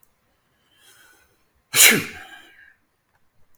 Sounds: Sneeze